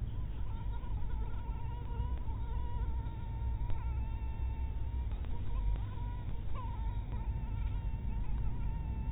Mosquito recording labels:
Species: mosquito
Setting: cup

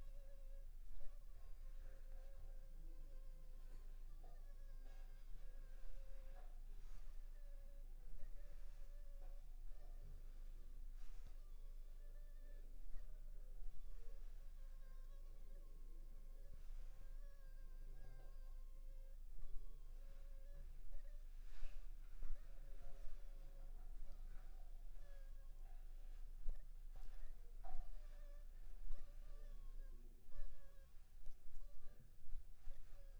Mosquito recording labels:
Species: Anopheles funestus s.s.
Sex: female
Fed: unfed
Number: one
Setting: cup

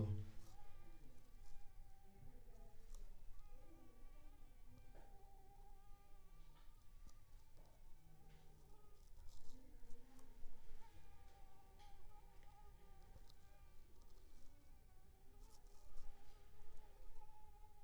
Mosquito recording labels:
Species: Anopheles arabiensis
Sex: female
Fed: unfed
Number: one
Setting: cup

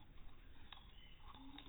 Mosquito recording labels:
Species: no mosquito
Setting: cup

